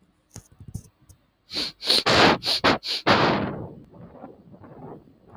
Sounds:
Sniff